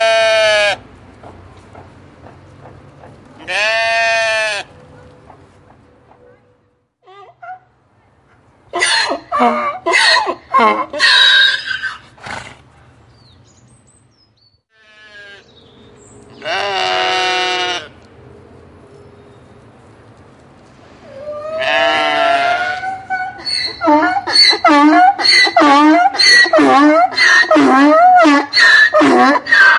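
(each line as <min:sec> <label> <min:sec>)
0:00.0 A donkey brays loudly with a nasal, high-pitched, and erratic vocalization. 0:29.8
0:00.0 A goat baas in a deep, slow, and resonant tone. 0:29.8
0:00.0 A horse neighs with a clear, high-pitched, and sharp sound. 0:29.8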